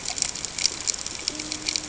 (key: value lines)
label: ambient
recorder: HydroMoth